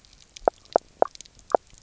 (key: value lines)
label: biophony, knock croak
recorder: SoundTrap 300